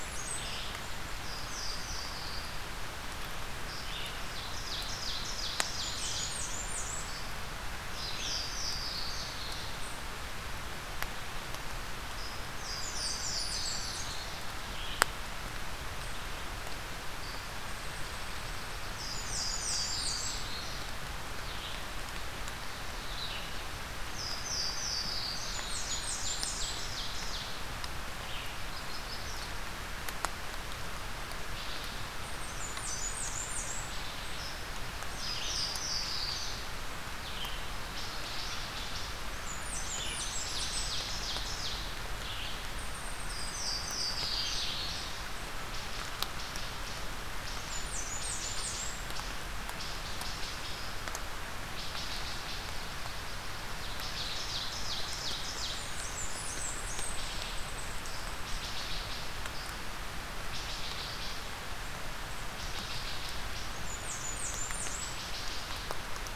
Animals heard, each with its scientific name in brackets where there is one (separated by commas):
Louisiana Waterthrush (Parkesia motacilla), unidentified call, Magnolia Warbler (Setophaga magnolia), Blackburnian Warbler (Setophaga fusca), Wood Thrush (Hylocichla mustelina), Red-eyed Vireo (Vireo olivaceus), Ovenbird (Seiurus aurocapilla)